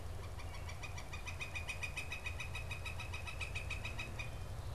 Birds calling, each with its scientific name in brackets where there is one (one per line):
Northern Flicker (Colaptes auratus)